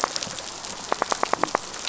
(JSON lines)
{"label": "biophony, rattle", "recorder": "SoundTrap 500"}